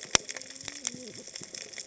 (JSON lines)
{"label": "biophony, cascading saw", "recorder": "HydroMoth"}